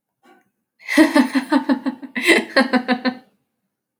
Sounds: Laughter